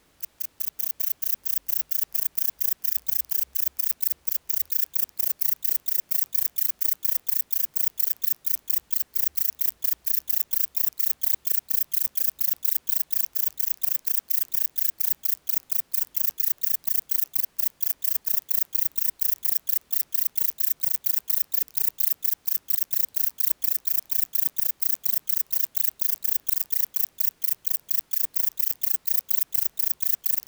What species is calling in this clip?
Vichetia oblongicollis